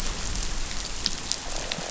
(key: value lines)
label: biophony, croak
recorder: SoundTrap 500